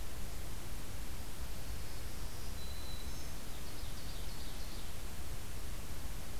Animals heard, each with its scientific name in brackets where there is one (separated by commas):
Ovenbird (Seiurus aurocapilla), Black-throated Green Warbler (Setophaga virens)